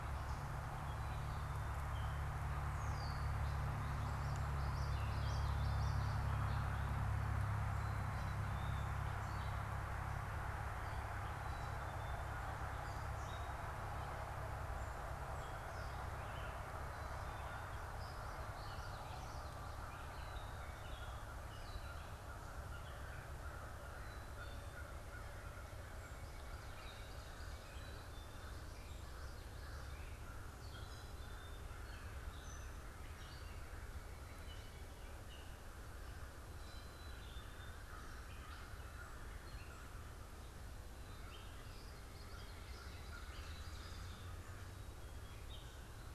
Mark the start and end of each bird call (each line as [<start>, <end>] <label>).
[0.00, 38.12] Black-capped Chickadee (Poecile atricapillus)
[0.00, 40.62] Gray Catbird (Dumetella carolinensis)
[4.12, 6.42] Common Yellowthroat (Geothlypis trichas)
[10.82, 40.22] American Crow (Corvus brachyrhynchos)
[17.62, 19.92] Common Yellowthroat (Geothlypis trichas)
[28.42, 30.42] Common Yellowthroat (Geothlypis trichas)
[40.92, 46.14] American Crow (Corvus brachyrhynchos)
[40.92, 46.14] Gray Catbird (Dumetella carolinensis)
[41.12, 43.02] Common Yellowthroat (Geothlypis trichas)
[42.82, 44.32] Ovenbird (Seiurus aurocapilla)